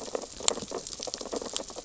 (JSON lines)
{"label": "biophony, sea urchins (Echinidae)", "recorder": "SoundTrap 600 or HydroMoth"}